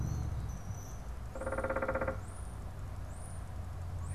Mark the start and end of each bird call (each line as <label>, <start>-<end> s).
European Starling (Sturnus vulgaris), 0.0-4.1 s
unidentified bird, 1.2-2.3 s